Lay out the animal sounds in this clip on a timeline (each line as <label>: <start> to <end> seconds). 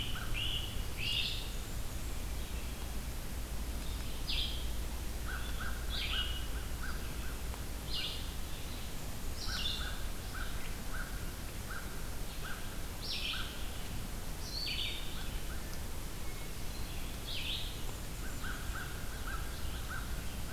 Great Crested Flycatcher (Myiarchus crinitus): 0.0 to 1.5 seconds
Red-eyed Vireo (Vireo olivaceus): 0.0 to 20.5 seconds
Blackburnian Warbler (Setophaga fusca): 1.0 to 2.2 seconds
Hermit Thrush (Catharus guttatus): 2.0 to 3.1 seconds
American Crow (Corvus brachyrhynchos): 5.2 to 8.1 seconds
American Crow (Corvus brachyrhynchos): 9.3 to 13.5 seconds
American Crow (Corvus brachyrhynchos): 15.1 to 15.8 seconds
Hermit Thrush (Catharus guttatus): 16.1 to 17.2 seconds
Blackburnian Warbler (Setophaga fusca): 17.7 to 18.9 seconds
American Crow (Corvus brachyrhynchos): 18.0 to 20.5 seconds